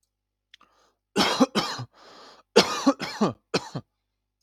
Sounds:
Cough